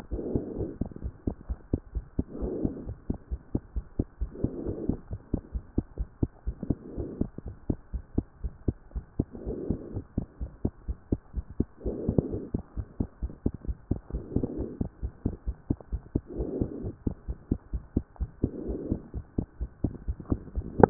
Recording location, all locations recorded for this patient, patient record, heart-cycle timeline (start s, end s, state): pulmonary valve (PV)
aortic valve (AV)+pulmonary valve (PV)+tricuspid valve (TV)+mitral valve (MV)
#Age: Child
#Sex: Female
#Height: 114.0 cm
#Weight: 25.8 kg
#Pregnancy status: False
#Murmur: Absent
#Murmur locations: nan
#Most audible location: nan
#Systolic murmur timing: nan
#Systolic murmur shape: nan
#Systolic murmur grading: nan
#Systolic murmur pitch: nan
#Systolic murmur quality: nan
#Diastolic murmur timing: nan
#Diastolic murmur shape: nan
#Diastolic murmur grading: nan
#Diastolic murmur pitch: nan
#Diastolic murmur quality: nan
#Outcome: Normal
#Campaign: 2014 screening campaign
0.00	0.12	diastole
0.12	0.22	S1
0.22	0.32	systole
0.32	0.42	S2
0.42	0.58	diastole
0.58	0.70	S1
0.70	0.80	systole
0.80	0.88	S2
0.88	1.02	diastole
1.02	1.12	S1
1.12	1.26	systole
1.26	1.36	S2
1.36	1.50	diastole
1.50	1.58	S1
1.58	1.72	systole
1.72	1.80	S2
1.80	1.94	diastole
1.94	2.04	S1
2.04	2.16	systole
2.16	2.24	S2
2.24	2.40	diastole
2.40	2.54	S1
2.54	2.62	systole
2.62	2.74	S2
2.74	2.86	diastole
2.86	2.96	S1
2.96	3.08	systole
3.08	3.18	S2
3.18	3.32	diastole
3.32	3.40	S1
3.40	3.52	systole
3.52	3.62	S2
3.62	3.76	diastole
3.76	3.84	S1
3.84	3.98	systole
3.98	4.06	S2
4.06	4.22	diastole
4.22	4.30	S1
4.30	4.42	systole
4.42	4.50	S2
4.50	4.64	diastole
4.64	4.76	S1
4.76	4.88	systole
4.88	4.98	S2
4.98	5.12	diastole
5.12	5.20	S1
5.20	5.32	systole
5.32	5.40	S2
5.40	5.54	diastole
5.54	5.62	S1
5.62	5.76	systole
5.76	5.84	S2
5.84	5.98	diastole
5.98	6.08	S1
6.08	6.20	systole
6.20	6.30	S2
6.30	6.46	diastole
6.46	6.56	S1
6.56	6.68	systole
6.68	6.76	S2
6.76	6.96	diastole
6.96	7.08	S1
7.08	7.20	systole
7.20	7.30	S2
7.30	7.46	diastole
7.46	7.56	S1
7.56	7.68	systole
7.68	7.78	S2
7.78	7.94	diastole
7.94	8.02	S1
8.02	8.16	systole
8.16	8.26	S2
8.26	8.42	diastole
8.42	8.52	S1
8.52	8.66	systole
8.66	8.76	S2
8.76	8.94	diastole
8.94	9.04	S1
9.04	9.18	systole
9.18	9.26	S2
9.26	9.46	diastole
9.46	9.58	S1
9.58	9.68	systole
9.68	9.78	S2
9.78	9.94	diastole
9.94	10.04	S1
10.04	10.16	systole
10.16	10.26	S2
10.26	10.40	diastole
10.40	10.50	S1
10.50	10.64	systole
10.64	10.72	S2
10.72	10.88	diastole
10.88	10.98	S1
10.98	11.10	systole
11.10	11.20	S2
11.20	11.36	diastole
11.36	11.46	S1
11.46	11.58	systole
11.58	11.68	S2
11.68	11.86	diastole
11.86	11.98	S1
11.98	12.08	systole
12.08	12.18	S2
12.18	12.30	diastole
12.30	12.42	S1
12.42	12.52	systole
12.52	12.62	S2
12.62	12.76	diastole
12.76	12.86	S1
12.86	12.98	systole
12.98	13.08	S2
13.08	13.22	diastole
13.22	13.32	S1
13.32	13.44	systole
13.44	13.52	S2
13.52	13.66	diastole
13.66	13.78	S1
13.78	13.90	systole
13.90	14.00	S2
14.00	14.14	diastole
14.14	14.24	S1
14.24	14.34	systole
14.34	14.44	S2
14.44	14.56	diastole
14.56	14.68	S1
14.68	14.80	systole
14.80	14.88	S2
14.88	15.02	diastole
15.02	15.12	S1
15.12	15.24	systole
15.24	15.34	S2
15.34	15.48	diastole
15.48	15.56	S1
15.56	15.68	systole
15.68	15.78	S2
15.78	15.92	diastole
15.92	16.02	S1
16.02	16.14	systole
16.14	16.22	S2
16.22	16.38	diastole
16.38	16.50	S1
16.50	16.58	systole
16.58	16.68	S2
16.68	16.82	diastole
16.82	16.94	S1
16.94	17.06	systole
17.06	17.16	S2
17.16	17.28	diastole
17.28	17.38	S1
17.38	17.50	systole
17.50	17.60	S2
17.60	17.74	diastole
17.74	17.82	S1
17.82	17.94	systole
17.94	18.04	S2
18.04	18.22	diastole
18.22	18.30	S1
18.30	18.42	systole
18.42	18.50	S2
18.50	18.66	diastole
18.66	18.80	S1
18.80	18.90	systole
18.90	19.00	S2
19.00	19.14	diastole
19.14	19.24	S1
19.24	19.36	systole
19.36	19.46	S2
19.46	19.60	diastole
19.60	19.70	S1
19.70	19.82	systole
19.82	19.92	S2
19.92	20.08	diastole
20.08	20.16	S1
20.16	20.30	systole
20.30	20.40	S2
20.40	20.64	diastole
20.64	20.66	S1
20.66	20.78	systole
20.78	20.90	S2